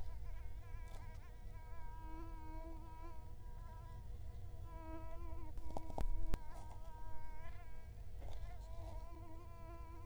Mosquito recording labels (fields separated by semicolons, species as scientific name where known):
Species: Culex quinquefasciatus; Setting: cup